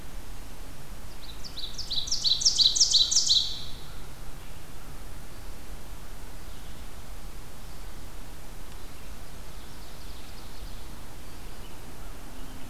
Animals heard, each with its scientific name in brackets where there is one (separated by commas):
Ovenbird (Seiurus aurocapilla)